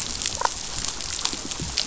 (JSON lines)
{"label": "biophony, damselfish", "recorder": "SoundTrap 500"}